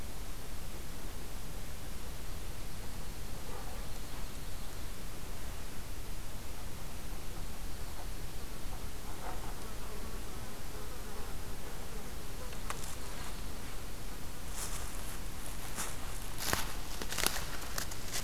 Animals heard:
forest ambience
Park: Hubbard Brook Experimental Forest